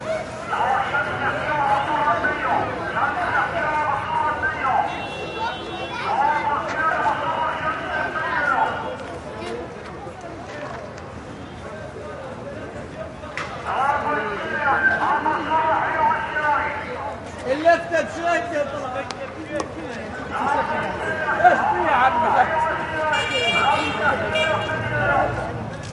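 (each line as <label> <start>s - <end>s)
Several people are walking and talking while someone shouts through a speaker in the distance. 0.0s - 8.9s
Several people are talking. 0.0s - 25.9s
A vehicle is honking and several people are talking. 4.9s - 6.0s
A person is shouting repeatedly in the distance on a speaker while several people are talking. 13.6s - 17.1s
A person is shouting loudly. 17.2s - 19.4s
A person is shouting on a speaker, several people are talking, and vehicles are honking. 20.3s - 25.9s
A vehicle is honking, a person is speaking repeatedly over a speaker, and several people are talking. 22.9s - 25.3s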